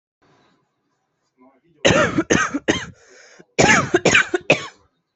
{"expert_labels": [{"quality": "good", "cough_type": "dry", "dyspnea": false, "wheezing": false, "stridor": false, "choking": false, "congestion": false, "nothing": true, "diagnosis": "obstructive lung disease", "severity": "mild"}], "gender": "female", "respiratory_condition": false, "fever_muscle_pain": false, "status": "COVID-19"}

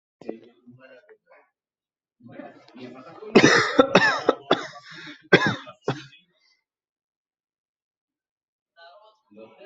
{"expert_labels": [{"quality": "ok", "cough_type": "dry", "dyspnea": false, "wheezing": false, "stridor": false, "choking": false, "congestion": false, "nothing": true, "diagnosis": "lower respiratory tract infection", "severity": "mild"}], "age": 21, "gender": "male", "respiratory_condition": false, "fever_muscle_pain": true, "status": "healthy"}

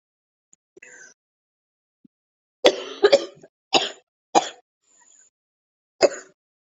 {"expert_labels": [{"quality": "ok", "cough_type": "dry", "dyspnea": false, "wheezing": false, "stridor": false, "choking": false, "congestion": false, "nothing": true, "diagnosis": "COVID-19", "severity": "mild"}], "age": 25, "gender": "female", "respiratory_condition": false, "fever_muscle_pain": true, "status": "symptomatic"}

